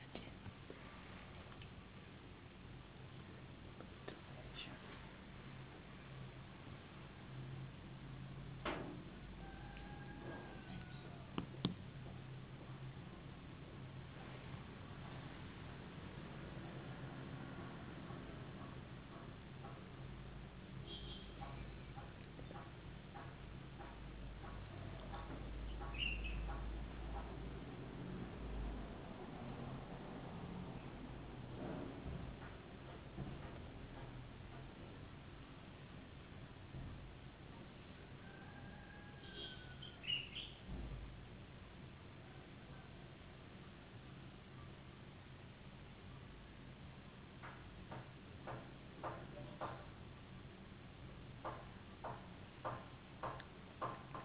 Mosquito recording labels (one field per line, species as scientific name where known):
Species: no mosquito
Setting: insect culture